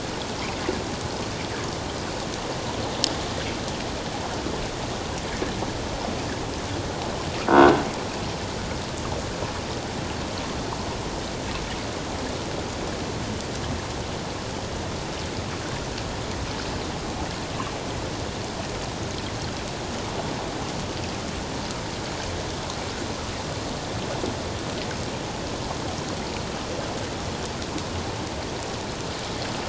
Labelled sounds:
7.5	7.8	croaking sound likely from a nearby submerged object, 1.4 to 1.6 kHz

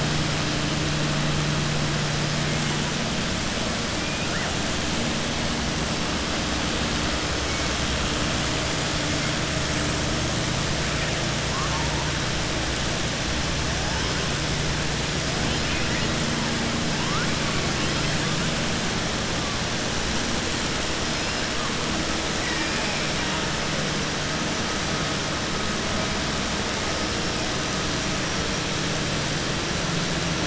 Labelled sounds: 15.5	16.1	killer whale, southern resident, 1.9 to 3.2 kHz

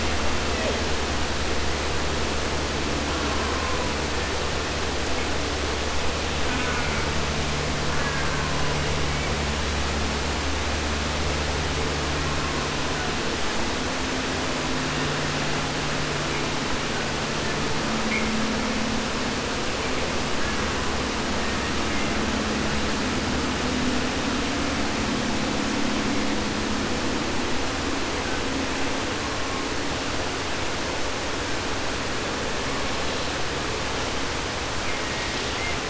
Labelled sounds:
0.4	0.9	killer whale, 0.23 to 4.0 kHz
3.0	4.0	killer whale, southern resident, 0.44 to 3.1 kHz
4.0	4.9	killer whale, 1.0 to 2.8 kHz
6.4	7.1	killer whale, southern resident, J pod, call S04, 0.10 to 3.0 kHz
7.8	9.4	killer whale, southern resident, J pod, call S04 and call S01, 0.10 to 3.7 kHz
12.1	13.3	killer whale, southern resident, 0.25 to 3.1 kHz
14.7	15.7	killer whale, southern resident, J pod, call S01, 0.56 to 5.4 kHz
20.3	21.1	killer whale, southern resident, J pod, call S04, 0.46 to 2.3 kHz
21.3	22.4	killer whale, southern resident, J pod, call S01, 0.31 to 3.9 kHz
29.1	29.9	killer whale, 0.38 to 1.8 kHz
34.8	35.8	killer whale, southern resident, J pod, call S01, 0 to 4.4 kHz

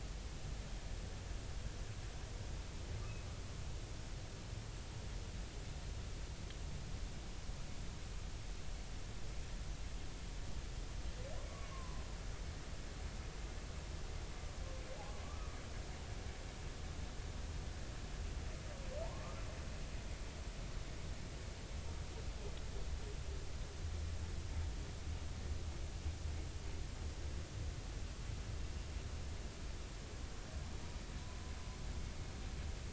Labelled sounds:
11.7	12.0	humpback whale, 0.96 to 1.2 kHz
15.2	15.6	humpback whale, 1.1 to 1.3 kHz
19.0	19.4	humpback whale, 0.86 to 1.3 kHz

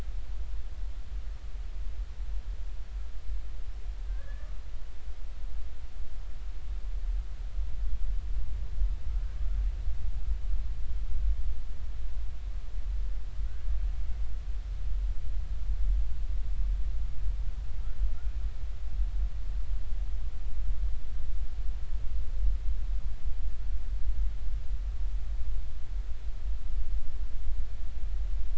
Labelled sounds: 4.1	4.5	humpback whale, 1.0 to 1.8 kHz

